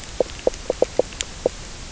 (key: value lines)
label: biophony, knock croak
recorder: SoundTrap 300